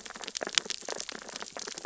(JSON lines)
{"label": "biophony, sea urchins (Echinidae)", "recorder": "SoundTrap 600 or HydroMoth"}